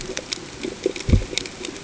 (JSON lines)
{"label": "ambient", "recorder": "HydroMoth"}